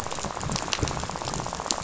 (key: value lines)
label: biophony, rattle
recorder: SoundTrap 500